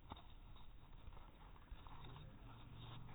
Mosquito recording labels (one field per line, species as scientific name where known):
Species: no mosquito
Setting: cup